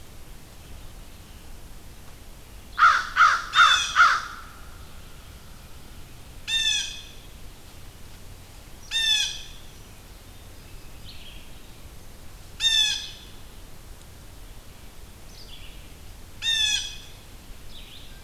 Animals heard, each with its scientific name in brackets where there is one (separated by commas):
American Crow (Corvus brachyrhynchos), Red-eyed Vireo (Vireo olivaceus), Blue Jay (Cyanocitta cristata)